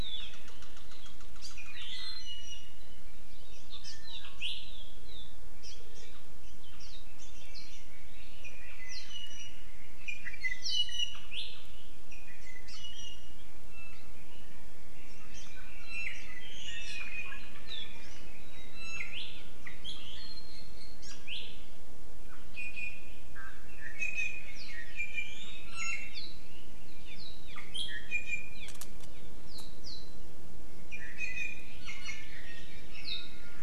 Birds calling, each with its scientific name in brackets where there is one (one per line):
Hawaii Amakihi (Chlorodrepanis virens)
Iiwi (Drepanis coccinea)